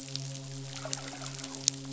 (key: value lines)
label: biophony, midshipman
recorder: SoundTrap 500